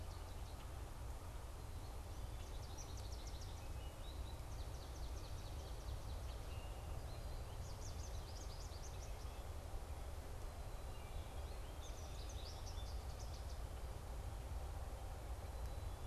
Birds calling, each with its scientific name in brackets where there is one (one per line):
Swamp Sparrow (Melospiza georgiana)
American Goldfinch (Spinus tristis)